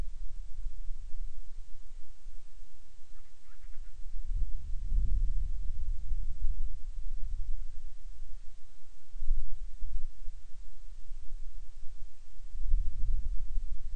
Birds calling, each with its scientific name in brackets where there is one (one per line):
Band-rumped Storm-Petrel (Hydrobates castro)